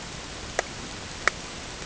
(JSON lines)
{"label": "ambient", "recorder": "HydroMoth"}